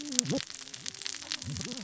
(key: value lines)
label: biophony, cascading saw
recorder: SoundTrap 600 or HydroMoth